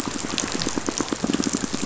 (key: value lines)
label: biophony, pulse
recorder: SoundTrap 500